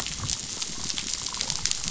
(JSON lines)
{"label": "biophony, damselfish", "recorder": "SoundTrap 500"}